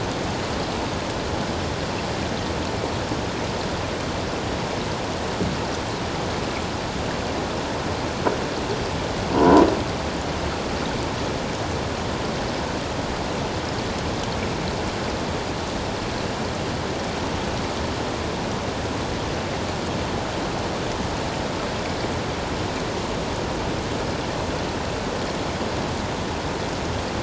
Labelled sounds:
9.3	9.6	croaking sound likely from a nearby submerged object, 0.91 to 1.0 kHz

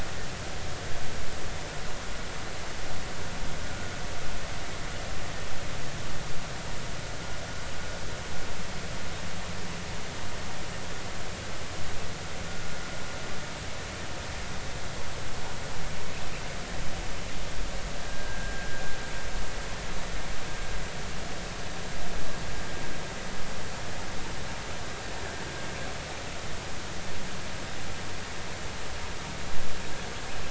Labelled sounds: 18.1	18.8	vessel noise, 1.5 to 1.7 kHz

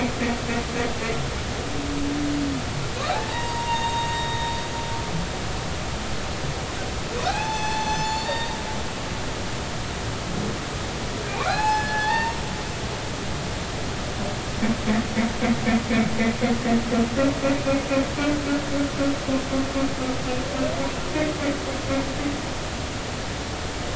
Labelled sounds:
3.1	4.5	humpback whale, 0.80 to 6.6 kHz
7.2	8.6	humpback whale, 0.80 to 7.2 kHz
11.3	12.4	humpback whale, 0.80 to 5.2 kHz

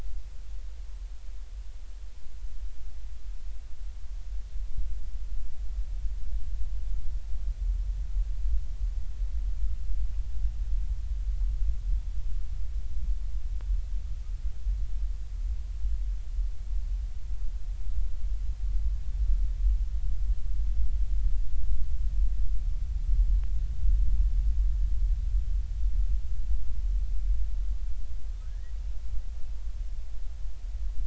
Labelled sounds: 28.4	28.7	humpback whale, 1.4 to 2.0 kHz

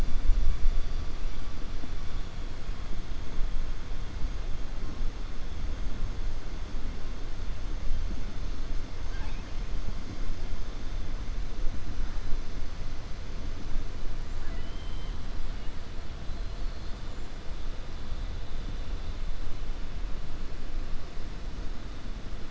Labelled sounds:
14.3	15.2	killer whale, 1.0 to 3.9 kHz

